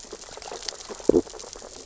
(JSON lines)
{"label": "biophony, sea urchins (Echinidae)", "recorder": "SoundTrap 600 or HydroMoth"}
{"label": "biophony, stridulation", "recorder": "SoundTrap 600 or HydroMoth"}